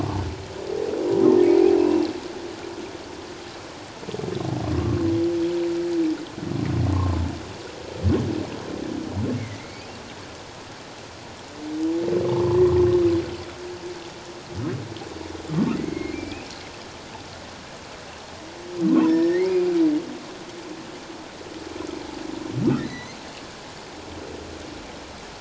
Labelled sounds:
1.1	2.1	humpback whale, 0.91 to 2.8 kHz
9.3	9.8	humpback whale, 1.9 to 2.4 kHz
12.3	12.6	humpback whale, 0.84 to 1.2 kHz
15.8	16.5	humpback whale, 1.9 to 2.8 kHz
18.9	19.5	humpback whale, 0.88 to 5.5 kHz
22.7	23.2	humpback whale, 1.8 to 4.3 kHz

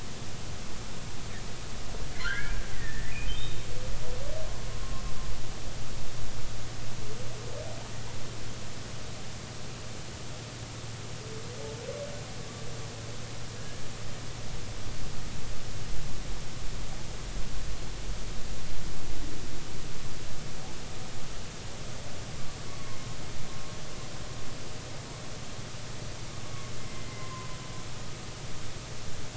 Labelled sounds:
2.2	3.7	humpback whale, 1.3 to 3.8 kHz
13.6	13.8	humpback whale, 1.6 to 1.8 kHz
26.9	27.5	humpback whale, 0.96 to 2.1 kHz

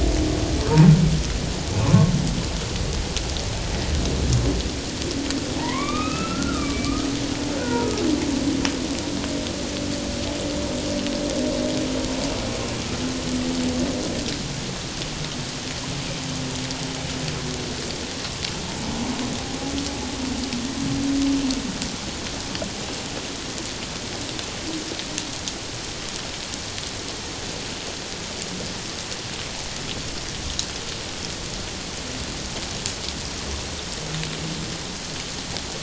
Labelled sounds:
1.8	2.1	humpback whale, 0.94 to 1.2 kHz
5.6	7.9	humpback whale, 0.88 to 3.9 kHz

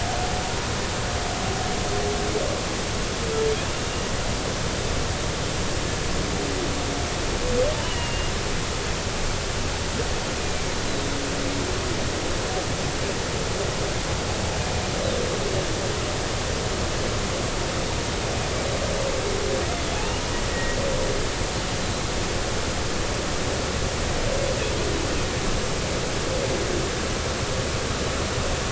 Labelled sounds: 7.8	8.3	humpback whale, 2.8 to 3.0 kHz
10.4	10.7	humpback whale, 2.3 to 2.5 kHz
20.5	20.8	humpback whale, 1.8 to 2.0 kHz

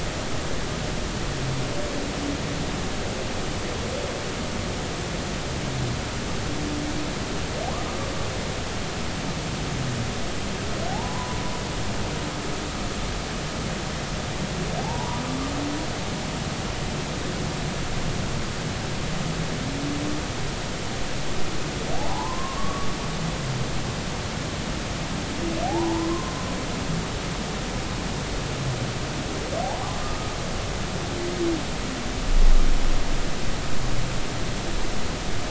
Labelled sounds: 10.9	11.4	humpback whale, 0.80 to 1.1 kHz
14.8	15.2	humpback whale, 0.80 to 1.1 kHz
21.9	22.9	humpback whale, 0.80 to 1.2 kHz
25.6	26.3	humpback whale, 0.80 to 1.1 kHz

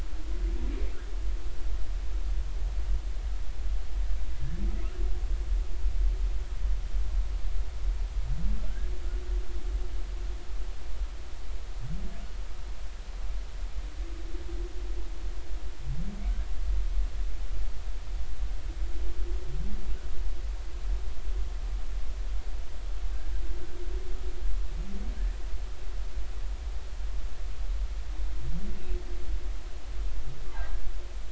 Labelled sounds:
30.5	30.8	humpback whale, 1.5 to 1.7 kHz

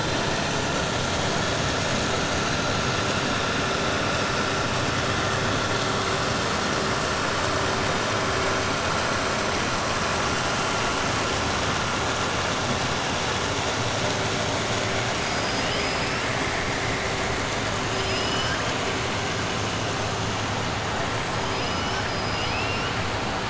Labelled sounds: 17.9	18.8	killer whale, 1.2 to 6.6 kHz
21.4	22.9	killer whale, 1.8 to 5.9 kHz

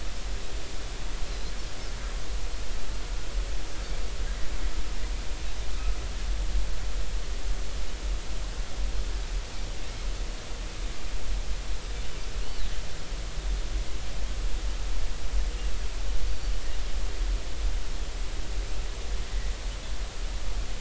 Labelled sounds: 1.2	1.5	Pacific white-sided dolphin, 3.9 to 4.2 kHz
16.3	16.6	Pacific white-sided dolphin, 4.5 to 4.7 kHz

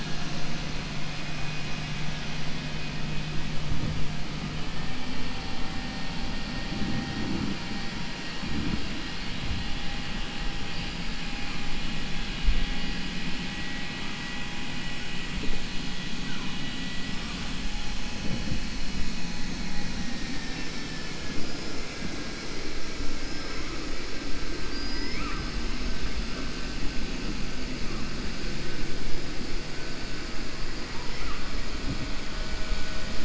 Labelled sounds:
16.2	16.8	killer whale, 0.99 to 4.0 kHz
24.6	25.2	killer whale, 4.0 to 5.4 kHz
30.9	31.4	killer whale, 0.90 to 3.0 kHz

